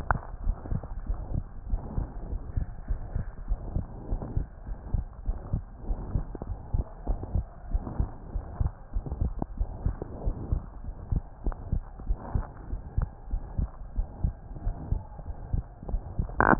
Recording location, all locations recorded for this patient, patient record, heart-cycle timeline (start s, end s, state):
pulmonary valve (PV)
aortic valve (AV)+pulmonary valve (PV)+tricuspid valve (TV)+mitral valve (MV)
#Age: Child
#Sex: Female
#Height: 128.0 cm
#Weight: 26.8 kg
#Pregnancy status: False
#Murmur: Present
#Murmur locations: aortic valve (AV)+mitral valve (MV)+pulmonary valve (PV)+tricuspid valve (TV)
#Most audible location: tricuspid valve (TV)
#Systolic murmur timing: Holosystolic
#Systolic murmur shape: Plateau
#Systolic murmur grading: II/VI
#Systolic murmur pitch: Medium
#Systolic murmur quality: Harsh
#Diastolic murmur timing: nan
#Diastolic murmur shape: nan
#Diastolic murmur grading: nan
#Diastolic murmur pitch: nan
#Diastolic murmur quality: nan
#Outcome: Abnormal
#Campaign: 2015 screening campaign
0.00	0.20	unannotated
0.20	0.44	diastole
0.44	0.56	S1
0.56	0.68	systole
0.68	0.82	S2
0.82	1.04	diastole
1.04	1.18	S1
1.18	1.30	systole
1.30	1.44	S2
1.44	1.68	diastole
1.68	1.84	S1
1.84	1.96	systole
1.96	2.08	S2
2.08	2.30	diastole
2.30	2.42	S1
2.42	2.54	systole
2.54	2.68	S2
2.68	2.88	diastole
2.88	2.98	S1
2.98	3.12	systole
3.12	3.26	S2
3.26	3.48	diastole
3.48	3.60	S1
3.60	3.74	systole
3.74	3.86	S2
3.86	4.10	diastole
4.10	4.20	S1
4.20	4.34	systole
4.34	4.48	S2
4.48	4.68	diastole
4.68	4.78	S1
4.78	4.92	systole
4.92	5.06	S2
5.06	5.26	diastole
5.26	5.40	S1
5.40	5.52	systole
5.52	5.64	S2
5.64	5.88	diastole
5.88	5.98	S1
5.98	6.12	systole
6.12	6.24	S2
6.24	6.48	diastole
6.48	6.58	S1
6.58	6.70	systole
6.70	6.84	S2
6.84	7.06	diastole
7.06	7.18	S1
7.18	7.32	systole
7.32	7.46	S2
7.46	7.68	diastole
7.68	7.86	S1
7.86	7.98	systole
7.98	8.10	S2
8.10	8.34	diastole
8.34	8.44	S1
8.44	8.58	systole
8.58	8.72	S2
8.72	8.94	diastole
8.94	9.04	S1
9.04	9.20	systole
9.20	9.34	S2
9.34	9.58	diastole
9.58	9.68	S1
9.68	9.84	systole
9.84	9.98	S2
9.98	10.24	diastole
10.24	10.34	S1
10.34	10.50	systole
10.50	10.64	S2
10.64	10.84	diastole
10.84	10.94	S1
10.94	11.10	systole
11.10	11.24	S2
11.24	11.46	diastole
11.46	11.56	S1
11.56	11.70	systole
11.70	11.84	S2
11.84	12.08	diastole
12.08	12.18	S1
12.18	12.34	systole
12.34	12.48	S2
12.48	12.72	diastole
12.72	12.82	S1
12.82	12.96	systole
12.96	13.10	S2
13.10	13.32	diastole
13.32	13.42	S1
13.42	13.56	systole
13.56	13.72	S2
13.72	13.96	diastole
13.96	14.08	S1
14.08	14.22	systole
14.22	14.36	S2
14.36	14.62	diastole
14.62	14.74	S1
14.74	14.90	systole
14.90	15.04	S2
15.04	15.26	diastole
15.26	15.36	S1
15.36	15.52	systole
15.52	15.66	S2
15.66	15.88	diastole
15.88	16.59	unannotated